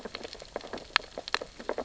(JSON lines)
{"label": "biophony, sea urchins (Echinidae)", "recorder": "SoundTrap 600 or HydroMoth"}